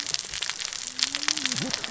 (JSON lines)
{"label": "biophony, cascading saw", "recorder": "SoundTrap 600 or HydroMoth"}